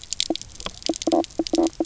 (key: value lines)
label: biophony, knock croak
recorder: SoundTrap 300